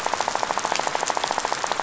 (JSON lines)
{"label": "biophony, rattle", "recorder": "SoundTrap 500"}